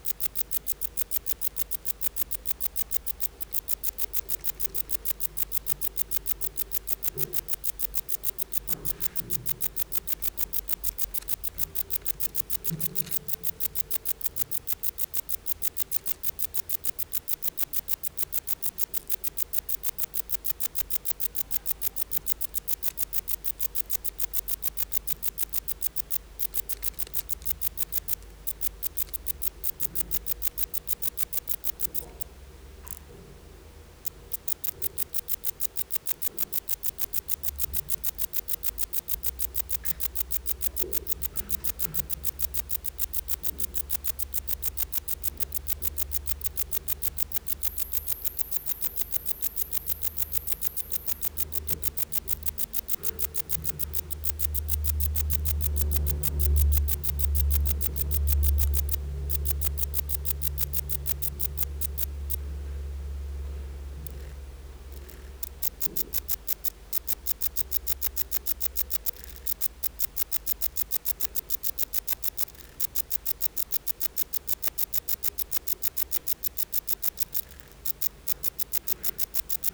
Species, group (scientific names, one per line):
Rhacocleis baccettii
Orthoptera